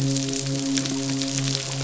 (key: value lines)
label: biophony, midshipman
recorder: SoundTrap 500